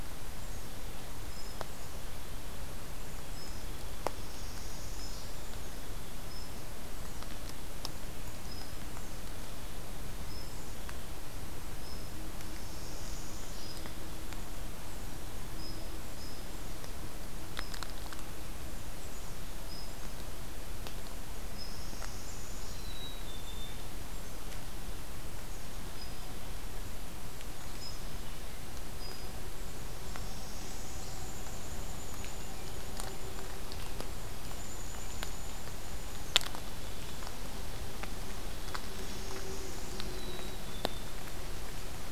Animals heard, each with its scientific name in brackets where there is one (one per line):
Brown Creeper (Certhia americana)
unidentified call
Northern Parula (Setophaga americana)
Black-capped Chickadee (Poecile atricapillus)